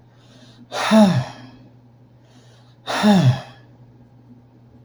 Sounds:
Sigh